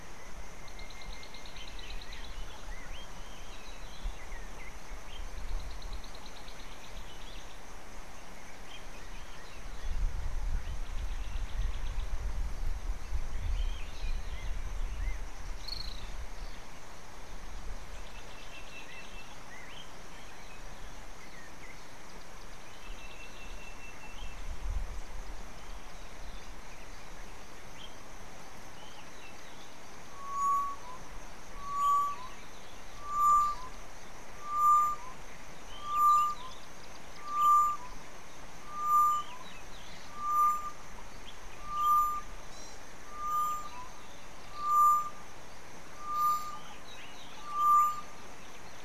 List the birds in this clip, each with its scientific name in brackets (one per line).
African Emerald Cuckoo (Chrysococcyx cupreus)
Gray-backed Camaroptera (Camaroptera brevicaudata)
African Bare-eyed Thrush (Turdus tephronotus)
Tropical Boubou (Laniarius major)
Sulphur-breasted Bushshrike (Telophorus sulfureopectus)
Little Swift (Apus affinis)